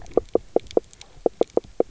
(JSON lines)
{"label": "biophony, knock croak", "recorder": "SoundTrap 300"}